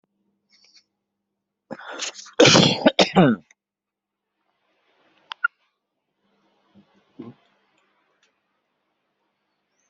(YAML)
expert_labels:
- quality: ok
  cough_type: dry
  dyspnea: false
  wheezing: false
  stridor: false
  choking: false
  congestion: false
  nothing: true
  diagnosis: healthy cough
  severity: pseudocough/healthy cough
age: 32
gender: male
respiratory_condition: true
fever_muscle_pain: false
status: symptomatic